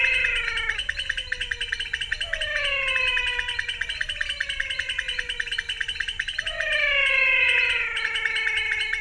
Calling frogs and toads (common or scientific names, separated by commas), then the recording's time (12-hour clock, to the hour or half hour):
pointedbelly frog, menwig frog
6pm